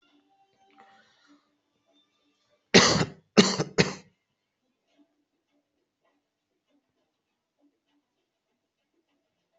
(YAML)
expert_labels:
- quality: ok
  cough_type: wet
  dyspnea: false
  wheezing: false
  stridor: false
  choking: false
  congestion: false
  nothing: true
  diagnosis: lower respiratory tract infection
  severity: mild
age: 19
gender: female
respiratory_condition: true
fever_muscle_pain: true
status: COVID-19